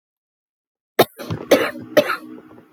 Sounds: Cough